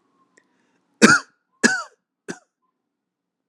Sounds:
Throat clearing